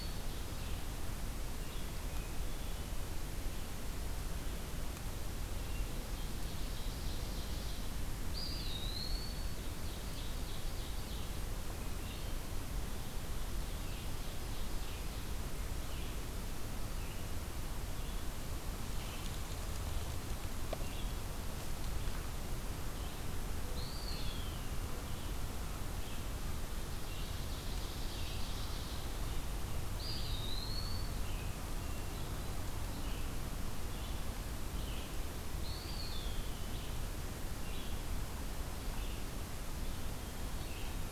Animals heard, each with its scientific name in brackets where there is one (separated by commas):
Eastern Wood-Pewee (Contopus virens), Hermit Thrush (Catharus guttatus), Ovenbird (Seiurus aurocapilla), Red-eyed Vireo (Vireo olivaceus)